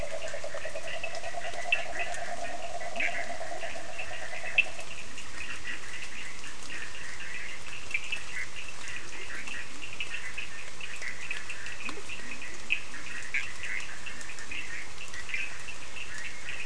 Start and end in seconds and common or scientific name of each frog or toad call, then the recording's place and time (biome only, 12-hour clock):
0.0	5.0	yellow cururu toad
0.0	16.6	Bischoff's tree frog
0.0	16.6	Cochran's lime tree frog
1.8	4.0	Leptodactylus latrans
5.0	6.8	Leptodactylus latrans
8.9	10.0	Leptodactylus latrans
11.8	13.2	Leptodactylus latrans
14.1	14.7	Leptodactylus latrans
Atlantic Forest, 11:30pm